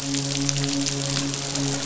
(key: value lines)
label: biophony, midshipman
recorder: SoundTrap 500